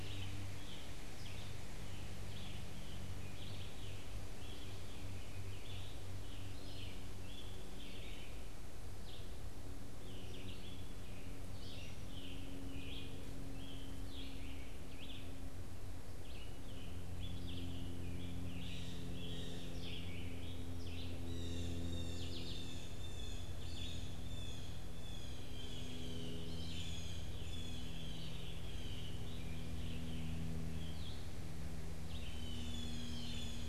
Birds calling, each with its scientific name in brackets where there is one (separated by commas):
Scarlet Tanager (Piranga olivacea), Red-eyed Vireo (Vireo olivaceus), Blue Jay (Cyanocitta cristata)